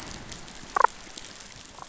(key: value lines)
label: biophony, damselfish
recorder: SoundTrap 500